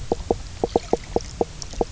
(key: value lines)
label: biophony, knock croak
recorder: SoundTrap 300